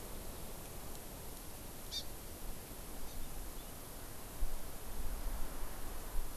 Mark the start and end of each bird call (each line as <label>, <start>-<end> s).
Hawaii Amakihi (Chlorodrepanis virens), 1.9-2.0 s
Hawaii Amakihi (Chlorodrepanis virens), 3.0-3.1 s